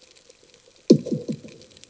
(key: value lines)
label: anthrophony, bomb
recorder: HydroMoth